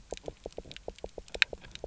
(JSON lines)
{"label": "biophony, knock", "recorder": "SoundTrap 300"}